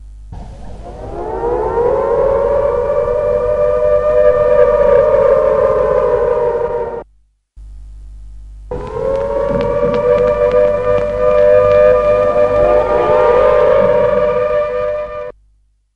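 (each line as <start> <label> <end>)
0.0 An air raid siren sounds in the distance amid constant static. 7.1
7.6 Static noise. 8.7
8.7 An air raid siren sounds in the distance amid constant static. 15.3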